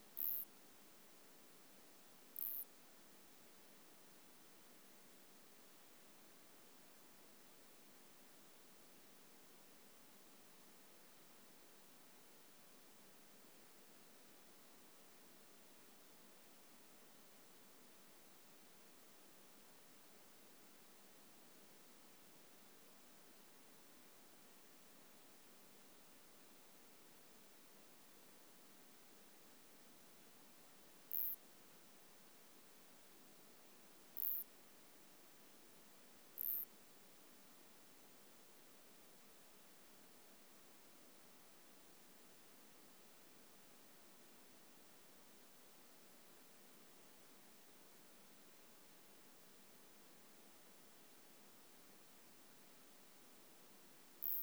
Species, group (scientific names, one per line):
Isophya clara
Orthoptera